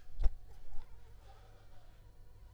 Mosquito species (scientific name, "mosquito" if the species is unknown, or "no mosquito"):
Anopheles gambiae s.l.